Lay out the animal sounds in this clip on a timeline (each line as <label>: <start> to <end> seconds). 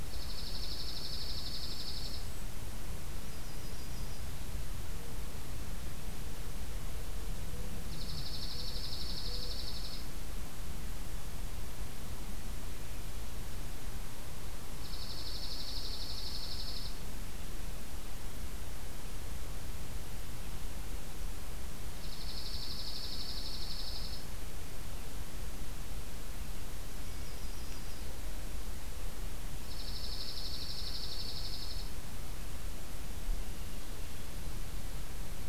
Dark-eyed Junco (Junco hyemalis): 0.0 to 2.3 seconds
Golden-crowned Kinglet (Regulus satrapa): 1.5 to 2.6 seconds
Yellow-rumped Warbler (Setophaga coronata): 3.1 to 4.3 seconds
Dark-eyed Junco (Junco hyemalis): 7.9 to 10.1 seconds
Dark-eyed Junco (Junco hyemalis): 14.8 to 16.9 seconds
Yellow-rumped Warbler (Setophaga coronata): 15.1 to 16.5 seconds
Dark-eyed Junco (Junco hyemalis): 21.8 to 24.3 seconds
Yellow-rumped Warbler (Setophaga coronata): 26.9 to 28.1 seconds
Dark-eyed Junco (Junco hyemalis): 29.5 to 32.0 seconds